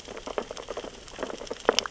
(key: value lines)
label: biophony, sea urchins (Echinidae)
recorder: SoundTrap 600 or HydroMoth